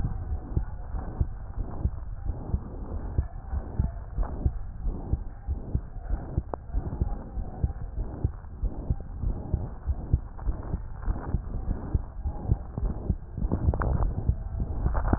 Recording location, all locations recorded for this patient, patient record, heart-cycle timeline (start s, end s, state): aortic valve (AV)
aortic valve (AV)+pulmonary valve (PV)+tricuspid valve (TV)+mitral valve (MV)
#Age: Child
#Sex: Female
#Height: 128.0 cm
#Weight: 26.8 kg
#Pregnancy status: False
#Murmur: Present
#Murmur locations: aortic valve (AV)+mitral valve (MV)+pulmonary valve (PV)+tricuspid valve (TV)
#Most audible location: tricuspid valve (TV)
#Systolic murmur timing: Holosystolic
#Systolic murmur shape: Plateau
#Systolic murmur grading: II/VI
#Systolic murmur pitch: Medium
#Systolic murmur quality: Harsh
#Diastolic murmur timing: nan
#Diastolic murmur shape: nan
#Diastolic murmur grading: nan
#Diastolic murmur pitch: nan
#Diastolic murmur quality: nan
#Outcome: Abnormal
#Campaign: 2015 screening campaign
0.00	0.08	unannotated
0.08	0.28	diastole
0.28	0.38	S1
0.38	0.52	systole
0.52	0.68	S2
0.68	0.92	diastole
0.92	1.04	S1
1.04	1.18	systole
1.18	1.32	S2
1.32	1.58	diastole
1.58	1.68	S1
1.68	1.82	systole
1.82	1.92	S2
1.92	2.22	diastole
2.22	2.36	S1
2.36	2.50	systole
2.50	2.62	S2
2.62	2.90	diastole
2.90	3.02	S1
3.02	3.16	systole
3.16	3.26	S2
3.26	3.52	diastole
3.52	3.64	S1
3.64	3.78	systole
3.78	3.92	S2
3.92	4.16	diastole
4.16	4.28	S1
4.28	4.42	systole
4.42	4.54	S2
4.54	4.82	diastole
4.82	4.94	S1
4.94	5.10	systole
5.10	5.20	S2
5.20	5.48	diastole
5.48	5.58	S1
5.58	5.72	systole
5.72	5.82	S2
5.82	6.08	diastole
6.08	6.20	S1
6.20	6.36	systole
6.36	6.46	S2
6.46	6.74	diastole
6.74	6.84	S1
6.84	7.00	systole
7.00	7.14	S2
7.14	7.36	diastole
7.36	7.46	S1
7.46	7.62	systole
7.62	7.74	S2
7.74	7.98	diastole
7.98	8.08	S1
8.08	8.22	systole
8.22	8.34	S2
8.34	8.62	diastole
8.62	8.74	S1
8.74	8.88	systole
8.88	9.00	S2
9.00	9.22	diastole
9.22	9.38	S1
9.38	9.52	systole
9.52	9.62	S2
9.62	9.86	diastole
9.86	9.98	S1
9.98	10.08	systole
10.08	10.20	S2
10.20	10.46	diastole
10.46	10.58	S1
10.58	10.70	systole
10.70	10.84	S2
10.84	11.05	diastole
11.05	11.18	S1
11.18	11.30	systole
11.30	11.46	S2
11.46	11.68	diastole
11.68	11.80	S1
11.80	11.90	systole
11.90	12.02	S2
12.02	12.26	diastole
12.26	12.36	S1
12.36	12.48	systole
12.48	12.62	S2
12.62	12.82	diastole
12.82	12.94	S1
12.94	13.06	systole
13.06	13.18	S2
13.18	13.42	diastole
13.42	13.52	S1
13.52	13.62	systole
13.62	13.78	S2
13.78	13.98	diastole
13.98	14.16	S1
14.16	14.26	systole
14.26	14.35	S2
14.35	15.18	unannotated